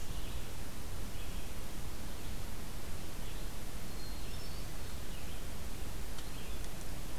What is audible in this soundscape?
Red-eyed Vireo, Hermit Thrush